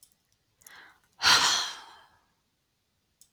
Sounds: Sigh